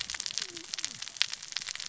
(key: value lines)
label: biophony, cascading saw
recorder: SoundTrap 600 or HydroMoth